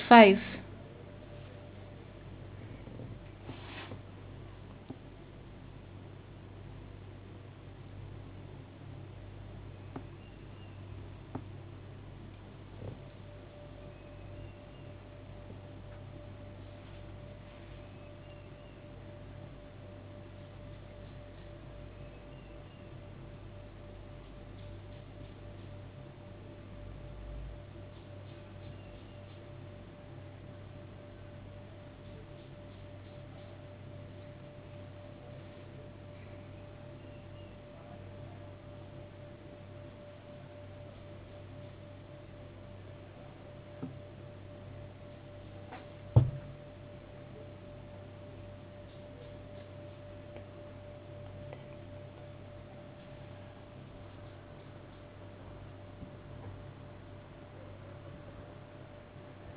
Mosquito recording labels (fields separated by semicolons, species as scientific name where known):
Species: no mosquito; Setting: insect culture